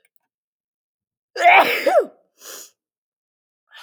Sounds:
Sneeze